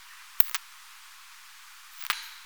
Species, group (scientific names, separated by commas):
Poecilimon gracilis, Orthoptera